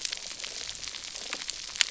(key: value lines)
label: biophony
recorder: SoundTrap 300